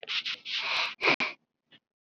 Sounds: Sniff